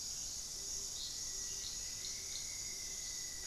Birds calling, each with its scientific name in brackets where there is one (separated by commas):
Rufous-fronted Antthrush (Formicarius rufifrons), Gilded Barbet (Capito auratus)